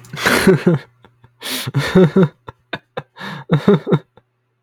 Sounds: Laughter